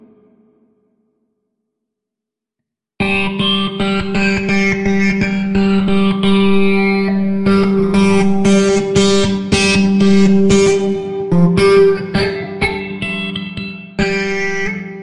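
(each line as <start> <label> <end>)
0.0 A deep drum hit with a fading echo creating a spacious and dramatic sound. 2.0
3.0 Loud, distorted electric guitar bursts in short, abrupt intervals with a gritty tone. 15.0
3.0 An electric guitar plays soft, mellow notes with ambient effects and a relaxed tone. 14.0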